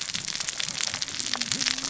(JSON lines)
{"label": "biophony, cascading saw", "recorder": "SoundTrap 600 or HydroMoth"}